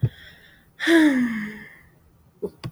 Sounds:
Sigh